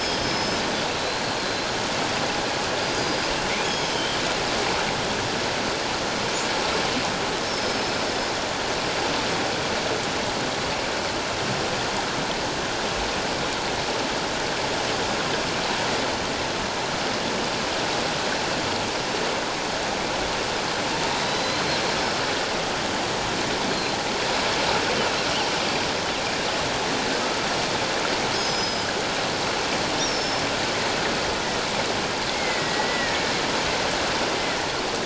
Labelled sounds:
0.0	1.7	killer whale, northern resident, 3.1 to 5.3 kHz
2.8	4.2	killer whale, northern resident, 3.0 to 5.3 kHz
7.4	7.9	killer whale, northern resident, 5.1 to 5.5 kHz
21.1	21.6	killer whale, northern resident, 3.8 to 4.2 kHz
23.7	24.0	killer whale, northern resident, 4.0 to 4.3 kHz
28.3	28.9	killer whale, northern resident, 4.8 to 6.2 kHz
30.0	30.4	killer whale, northern resident, 5.2 to 5.8 kHz
32.3	33.2	killer whale, northern resident, 1.8 to 2.2 kHz

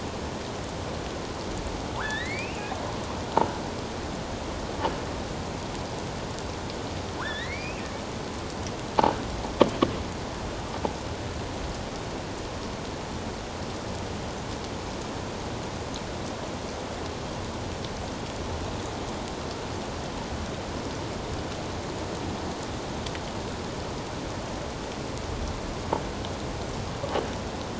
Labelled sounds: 1.9	2.7	killer whale, offshore, 0.81 to 4.0 kHz
7.2	7.8	killer whale, offshore, 1.3 to 4.3 kHz

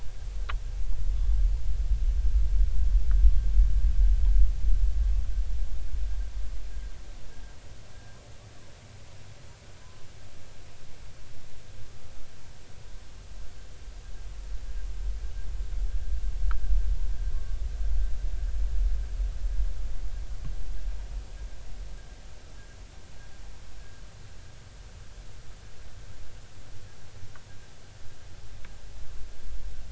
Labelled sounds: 17.3	17.6	humpback whale, 1.0 to 1.2 kHz

